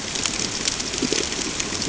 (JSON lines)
{"label": "ambient", "recorder": "HydroMoth"}